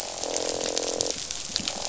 {"label": "biophony, croak", "recorder": "SoundTrap 500"}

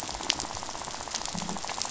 {"label": "biophony, rattle", "recorder": "SoundTrap 500"}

